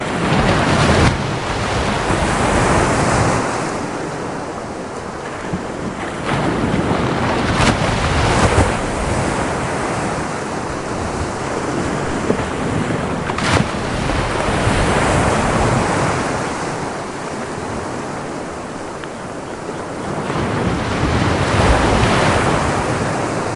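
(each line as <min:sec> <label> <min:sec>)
0:00.0 Waves crashing. 0:07.4
0:07.5 An object is dropped into water. 0:07.9
0:08.0 Waves crash against rocks. 0:13.0
0:13.1 A rock drops into deep water. 0:13.8
0:13.9 Waves continuously crash onto the shore with long pauses in between. 0:23.5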